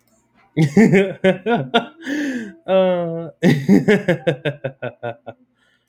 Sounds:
Laughter